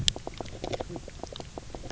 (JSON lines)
{"label": "biophony, knock croak", "recorder": "SoundTrap 300"}